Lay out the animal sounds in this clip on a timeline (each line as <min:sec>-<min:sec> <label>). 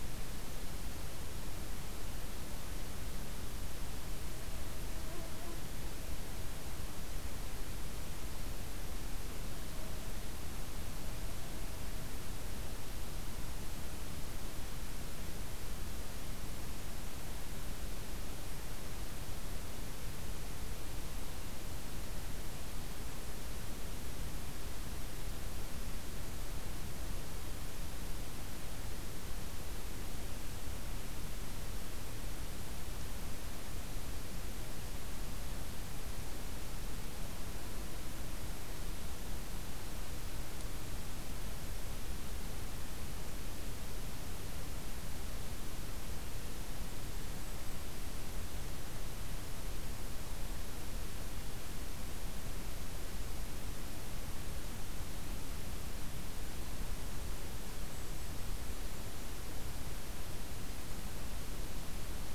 0:57.6-0:59.5 Golden-crowned Kinglet (Regulus satrapa)